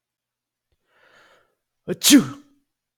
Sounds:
Sneeze